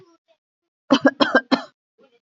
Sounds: Cough